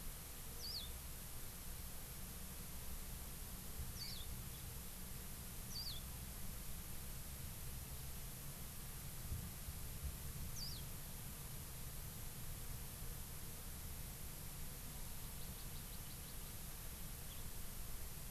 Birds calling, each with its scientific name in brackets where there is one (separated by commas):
House Finch (Haemorhous mexicanus), Hawaii Amakihi (Chlorodrepanis virens)